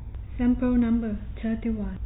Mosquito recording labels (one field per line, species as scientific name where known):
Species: no mosquito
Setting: cup